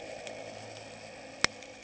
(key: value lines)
label: anthrophony, boat engine
recorder: HydroMoth